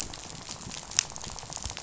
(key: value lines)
label: biophony, rattle
recorder: SoundTrap 500